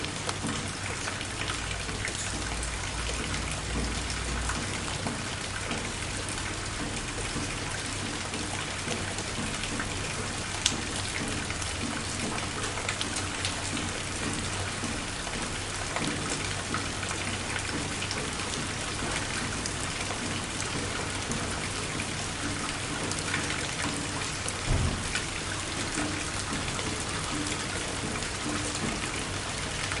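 0.1s Rain falls steadily onto the ground. 30.0s
0.9s Raindrops fall irregularly onto a solid surface in the distance. 29.9s

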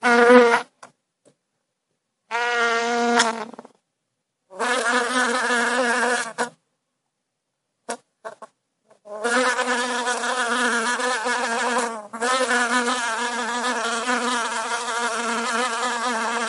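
0.0s An insect buzzes loudly and aggressively nearby. 0.9s
2.3s An insect buzzes loudly and aggressively, impacts an object, and falls. 3.7s
4.5s An insect buzzes loudly and aggressively nearby. 6.5s
7.8s An insect is quietly buzzing in the distance. 8.5s
9.0s An insect is loudly buzzing in a steady but aggressive pattern. 16.5s

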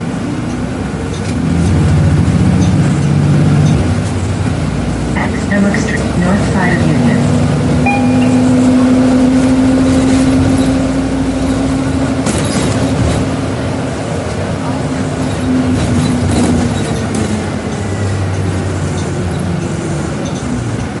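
0.0s A car engine is running. 21.0s
5.1s An artificial voice assistant is speaking. 7.8s
7.8s A tonal signal sounds. 8.3s

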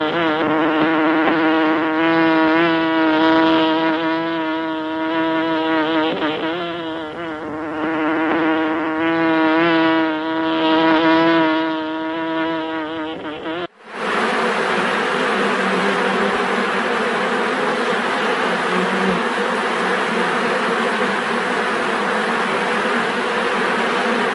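0.0s A bee buzzing with high and low tones. 13.8s
13.8s Static buzzing noise of a beehive. 24.3s

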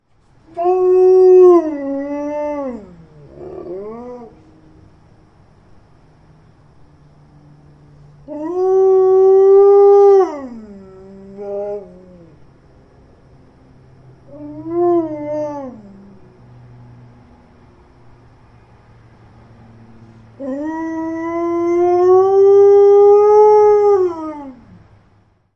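0.5s A dog or wolf moans. 4.5s
8.2s A dog or wolf moans eerily. 12.3s
14.1s A dog or wolf moans. 16.2s
20.3s A dog or wolf moans loudly in a creepy manner. 25.1s

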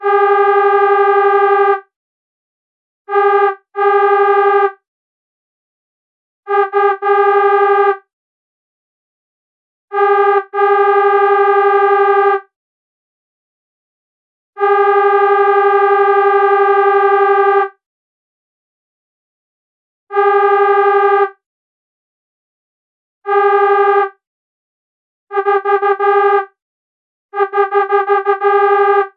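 0.0s A car horn blares loudly and continuously. 1.9s
3.0s A car horn blares repeatedly and loudly. 4.9s
6.4s A car horn blares repeatedly and loudly. 8.2s
9.8s A car horn blares repeatedly and loudly. 12.5s
14.5s A car horn blares loudly and continuously. 17.9s
20.0s A car horn blares loudly and continuously. 21.4s
23.1s A car horn blares loudly and continuously. 24.3s
25.2s A car horn blares repeatedly and loudly. 26.6s
27.2s A car horn blares repeatedly and loudly. 29.2s

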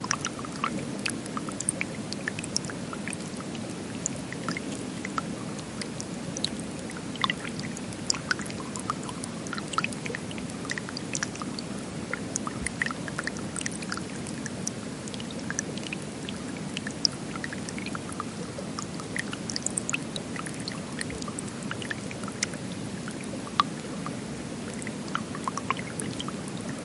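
0.0s Ambient rain in the forest. 26.8s
0.0s Raindrops hitting a puddle up close. 26.8s

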